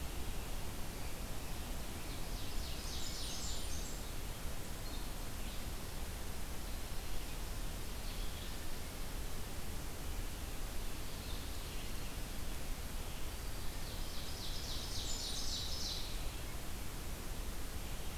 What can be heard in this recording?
Ovenbird, Blackburnian Warbler, Black-throated Green Warbler